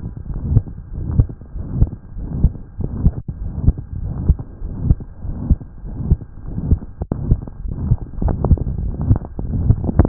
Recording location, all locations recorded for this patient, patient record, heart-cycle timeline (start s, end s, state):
tricuspid valve (TV)
aortic valve (AV)+pulmonary valve (PV)+tricuspid valve (TV)+mitral valve (MV)
#Age: Child
#Sex: Male
#Height: 111.0 cm
#Weight: 18.5 kg
#Pregnancy status: False
#Murmur: Present
#Murmur locations: aortic valve (AV)+mitral valve (MV)+pulmonary valve (PV)+tricuspid valve (TV)
#Most audible location: pulmonary valve (PV)
#Systolic murmur timing: Mid-systolic
#Systolic murmur shape: Diamond
#Systolic murmur grading: III/VI or higher
#Systolic murmur pitch: High
#Systolic murmur quality: Harsh
#Diastolic murmur timing: nan
#Diastolic murmur shape: nan
#Diastolic murmur grading: nan
#Diastolic murmur pitch: nan
#Diastolic murmur quality: nan
#Outcome: Abnormal
#Campaign: 2015 screening campaign
0.00	0.27	diastole
0.27	0.42	S1
0.42	0.50	systole
0.50	0.64	S2
0.64	0.91	diastole
0.91	1.04	S1
1.04	1.13	systole
1.13	1.28	S2
1.28	1.53	diastole
1.53	1.66	S1
1.66	1.76	systole
1.76	1.90	S2
1.90	2.15	diastole
2.15	2.32	S1
2.32	2.38	systole
2.38	2.54	S2
2.54	2.77	diastole
2.77	2.92	S1
2.92	3.00	systole
3.00	3.14	S2
3.14	3.36	diastole
3.36	3.52	S1
3.52	3.62	systole
3.62	3.78	S2
3.78	3.98	diastole
3.98	4.12	S1
4.12	4.22	systole
4.22	4.38	S2
4.38	4.62	diastole
4.62	4.76	S1
4.76	4.84	systole
4.84	5.00	S2
5.00	5.21	diastole
5.21	5.36	S1
5.36	5.44	systole
5.44	5.60	S2
5.60	5.82	diastole
5.82	5.98	S1
5.98	6.06	systole
6.06	6.22	S2
6.22	6.45	diastole
6.45	6.58	S1
6.58	6.66	systole
6.66	6.82	S2
6.82	7.09	diastole
7.11	7.21	S1
7.21	7.28	systole
7.28	7.42	S2
7.42	7.62	diastole
7.62	7.76	S1
7.76	7.84	systole
7.84	7.98	S2